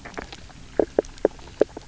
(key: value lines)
label: biophony, knock croak
recorder: SoundTrap 300